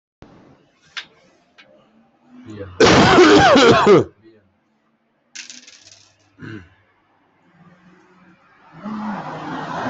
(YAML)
expert_labels:
- quality: poor
  cough_type: unknown
  dyspnea: false
  wheezing: false
  stridor: false
  choking: false
  congestion: false
  nothing: true
  diagnosis: lower respiratory tract infection
  severity: mild
age: 37
gender: male
respiratory_condition: false
fever_muscle_pain: true
status: healthy